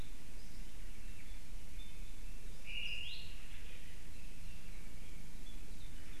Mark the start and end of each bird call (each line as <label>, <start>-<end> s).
Apapane (Himatione sanguinea), 0.0-3.2 s
Omao (Myadestes obscurus), 2.6-3.6 s
Apapane (Himatione sanguinea), 5.4-6.2 s